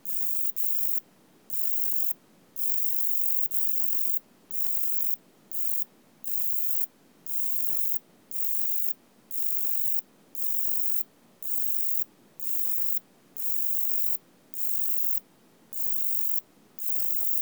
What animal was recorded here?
Pseudosubria bispinosa, an orthopteran